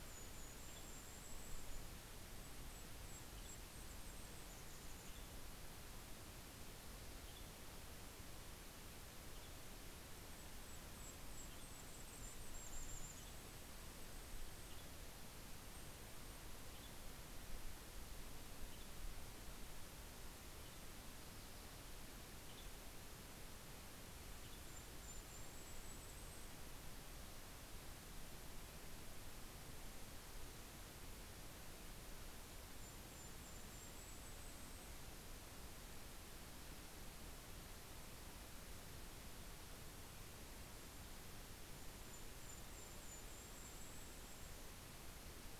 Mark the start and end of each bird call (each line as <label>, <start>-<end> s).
Golden-crowned Kinglet (Regulus satrapa), 0.0-5.3 s
Western Tanager (Piranga ludoviciana), 0.0-25.2 s
Golden-crowned Kinglet (Regulus satrapa), 9.7-16.4 s
Golden-crowned Kinglet (Regulus satrapa), 24.3-26.8 s
Golden-crowned Kinglet (Regulus satrapa), 31.9-35.5 s
Golden-crowned Kinglet (Regulus satrapa), 41.3-45.5 s